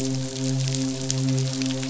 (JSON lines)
{"label": "biophony, midshipman", "recorder": "SoundTrap 500"}